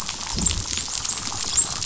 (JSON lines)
{"label": "biophony, dolphin", "recorder": "SoundTrap 500"}